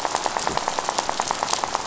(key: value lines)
label: biophony, rattle
recorder: SoundTrap 500